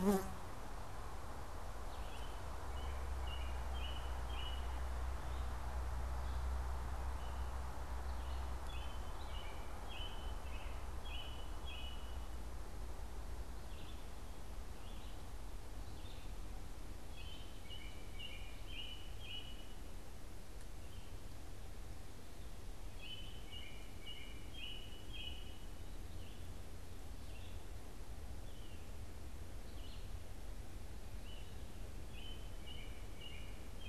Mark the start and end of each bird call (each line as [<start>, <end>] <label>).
[0.00, 33.08] Red-eyed Vireo (Vireo olivaceus)
[1.58, 33.88] American Robin (Turdus migratorius)